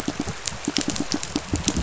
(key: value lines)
label: biophony, pulse
recorder: SoundTrap 500